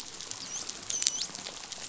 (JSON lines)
{"label": "biophony, dolphin", "recorder": "SoundTrap 500"}